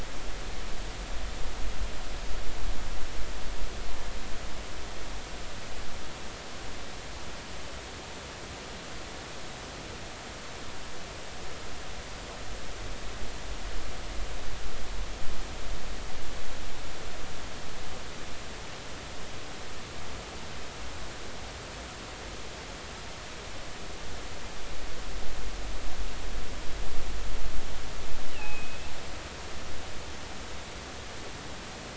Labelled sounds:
28.3	28.8	killer whale, offshore, 2.4 to 2.9 kHz

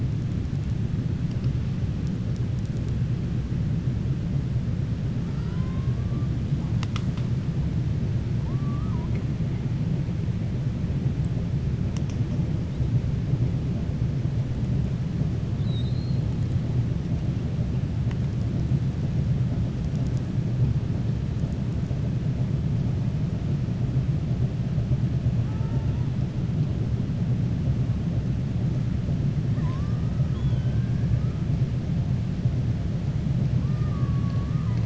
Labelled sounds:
5.3	6.0	killer whale, 0.92 to 2.1 kHz
15.5	16.2	killer whale, 3.5 to 4.4 kHz
30.2	30.9	killer whale, southern resident, 0.98 to 3.4 kHz
33.6	34.8	killer whale, southern resident, 0.99 to 2.7 kHz

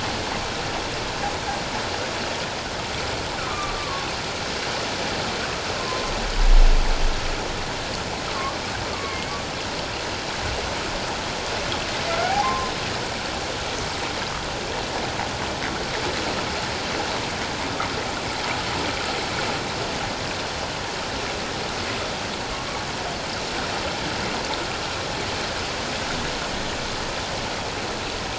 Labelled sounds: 3.4	4.1	humpback whale, 0.97 to 1.5 kHz
5.7	6.1	humpback whale, 0.97 to 1.1 kHz
8.9	9.2	humpback whale, 1.0 to 1.2 kHz
12.2	12.7	humpback whale, 0.78 to 1.1 kHz

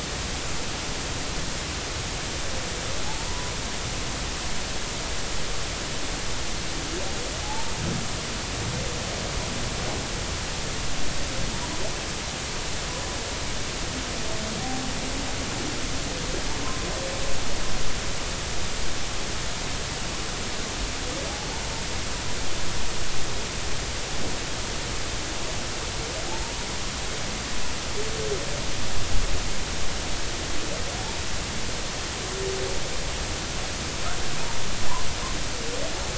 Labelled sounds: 3.0	3.5	humpback whale, 0.80 to 1.0 kHz
7.4	7.7	humpback whale, 0.80 to 0.96 kHz

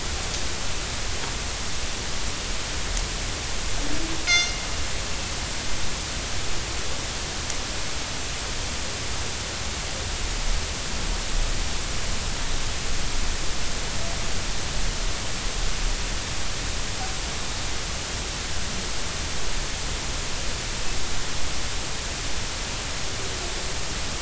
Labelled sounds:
4.3	4.6	killer whale, northern resident, G clan, call N24ii, 2.0 to 6.5 kHz

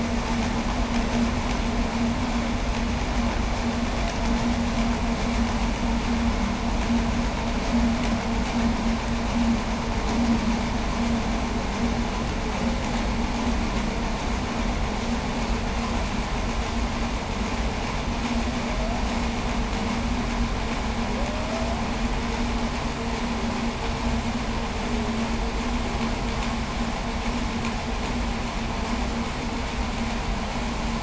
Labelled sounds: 18.5	19.3	humpback whale, 0.53 to 0.96 kHz
21.1	21.9	humpback whale, 0.42 to 0.81 kHz

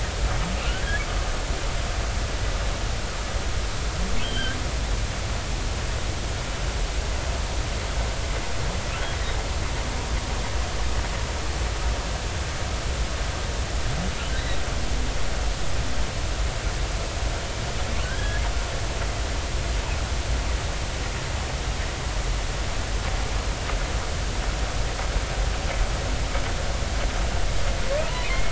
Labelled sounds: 0.6	1.0	humpback whale, 1.3 to 1.9 kHz
4.2	4.5	humpback whale, 2.9 to 3.3 kHz
18.0	18.4	humpback whale, 1.4 to 3.4 kHz
28.2	28.5	humpback whale, 2.0 to 2.6 kHz

